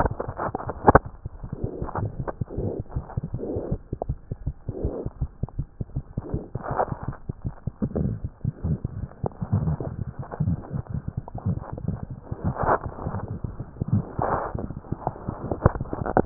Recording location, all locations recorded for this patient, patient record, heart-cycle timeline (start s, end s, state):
mitral valve (MV)
aortic valve (AV)+pulmonary valve (PV)+tricuspid valve (TV)+mitral valve (MV)
#Age: Infant
#Sex: Female
#Height: 70.0 cm
#Weight: 9.3 kg
#Pregnancy status: False
#Murmur: Absent
#Murmur locations: nan
#Most audible location: nan
#Systolic murmur timing: nan
#Systolic murmur shape: nan
#Systolic murmur grading: nan
#Systolic murmur pitch: nan
#Systolic murmur quality: nan
#Diastolic murmur timing: nan
#Diastolic murmur shape: nan
#Diastolic murmur grading: nan
#Diastolic murmur pitch: nan
#Diastolic murmur quality: nan
#Outcome: Abnormal
#Campaign: 2015 screening campaign
0.00	4.16	unannotated
4.16	4.28	diastole
4.28	4.35	S1
4.35	4.44	systole
4.44	4.52	S2
4.52	4.66	diastole
4.66	4.74	S1
4.74	4.83	systole
4.83	4.90	S2
4.90	5.03	diastole
5.03	5.10	S1
5.10	5.19	systole
5.19	5.27	S2
5.27	5.42	diastole
5.42	5.49	S1
5.49	5.58	systole
5.58	5.65	S2
5.65	5.78	diastole
5.78	5.85	S1
5.85	5.95	systole
5.95	6.01	S2
6.01	6.14	diastole
6.14	6.20	S1
6.20	6.30	systole
6.30	6.38	S2
6.38	6.54	diastole
6.54	6.62	S1
6.62	6.68	systole
6.68	6.77	S2
6.77	6.89	diastole
6.89	6.97	S1
6.97	7.05	systole
7.05	7.13	S2
7.13	7.27	diastole
7.27	7.33	S1
7.33	7.43	systole
7.43	7.54	S2
7.54	7.64	diastole
7.64	7.71	S1
7.71	7.81	systole
7.81	16.26	unannotated